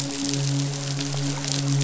{"label": "biophony, midshipman", "recorder": "SoundTrap 500"}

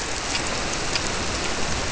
{"label": "biophony", "recorder": "SoundTrap 300"}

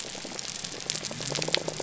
{"label": "biophony", "recorder": "SoundTrap 300"}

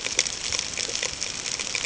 {"label": "ambient", "recorder": "HydroMoth"}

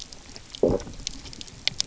{"label": "biophony, low growl", "recorder": "SoundTrap 300"}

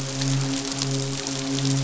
{"label": "biophony, midshipman", "recorder": "SoundTrap 500"}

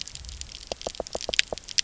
{"label": "biophony, knock", "recorder": "SoundTrap 300"}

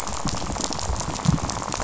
{"label": "biophony, rattle", "recorder": "SoundTrap 500"}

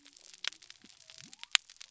{"label": "biophony", "recorder": "SoundTrap 300"}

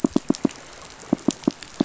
{"label": "biophony, pulse", "recorder": "SoundTrap 500"}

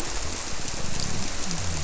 {"label": "biophony", "recorder": "SoundTrap 300"}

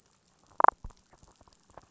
{"label": "biophony, damselfish", "recorder": "SoundTrap 500"}
{"label": "biophony", "recorder": "SoundTrap 500"}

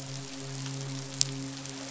{"label": "biophony, midshipman", "recorder": "SoundTrap 500"}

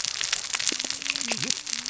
{"label": "biophony, cascading saw", "recorder": "SoundTrap 600 or HydroMoth"}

